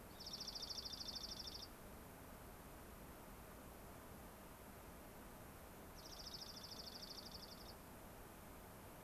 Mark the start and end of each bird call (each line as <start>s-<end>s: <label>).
0.1s-1.7s: Dark-eyed Junco (Junco hyemalis)
5.9s-7.8s: Dark-eyed Junco (Junco hyemalis)